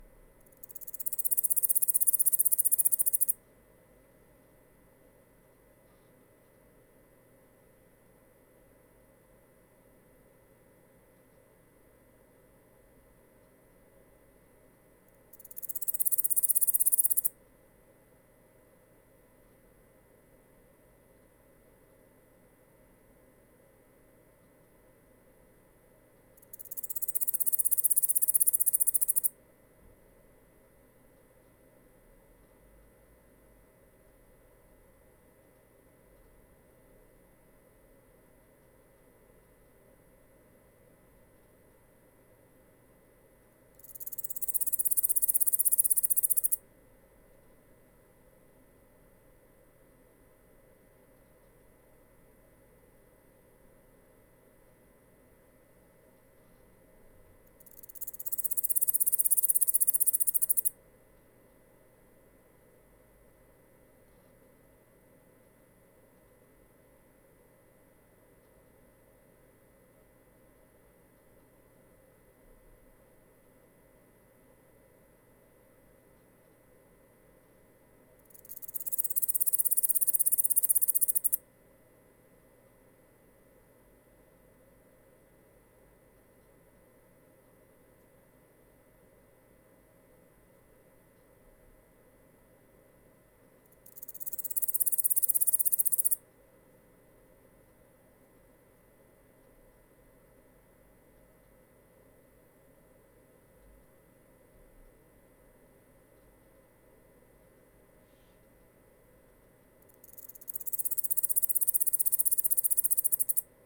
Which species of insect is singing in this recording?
Pholidoptera littoralis